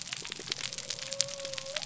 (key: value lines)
label: biophony
recorder: SoundTrap 300